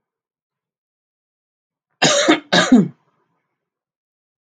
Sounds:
Cough